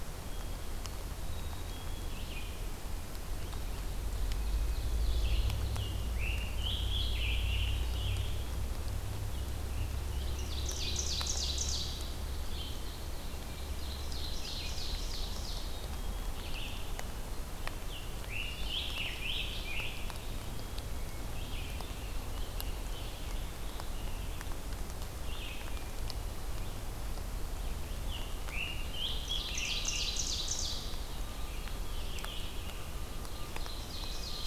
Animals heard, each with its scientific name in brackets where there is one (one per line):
Black-capped Chickadee (Poecile atricapillus)
Red-eyed Vireo (Vireo olivaceus)
Ovenbird (Seiurus aurocapilla)
Scarlet Tanager (Piranga olivacea)
Hermit Thrush (Catharus guttatus)